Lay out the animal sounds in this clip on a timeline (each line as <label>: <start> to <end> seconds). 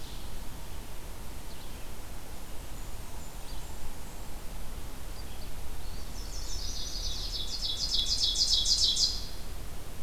Ovenbird (Seiurus aurocapilla): 0.0 to 0.7 seconds
Red-eyed Vireo (Vireo olivaceus): 0.0 to 10.0 seconds
Blackburnian Warbler (Setophaga fusca): 2.2 to 4.4 seconds
Chestnut-sided Warbler (Setophaga pensylvanica): 5.9 to 7.2 seconds
Ovenbird (Seiurus aurocapilla): 7.0 to 9.5 seconds